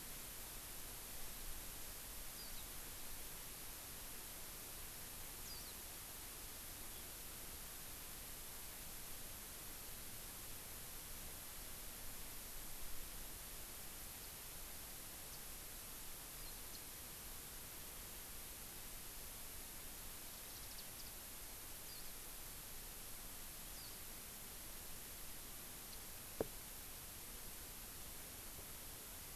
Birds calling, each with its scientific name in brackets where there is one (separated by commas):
House Finch (Haemorhous mexicanus), Warbling White-eye (Zosterops japonicus)